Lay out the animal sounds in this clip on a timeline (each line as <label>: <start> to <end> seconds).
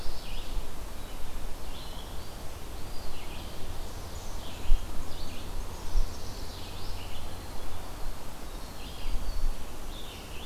Ovenbird (Seiurus aurocapilla): 0.0 to 0.5 seconds
Red-eyed Vireo (Vireo olivaceus): 0.0 to 10.5 seconds
Eastern Wood-Pewee (Contopus virens): 2.6 to 3.3 seconds
Chestnut-sided Warbler (Setophaga pensylvanica): 5.4 to 6.7 seconds
Winter Wren (Troglodytes hiemalis): 5.9 to 10.5 seconds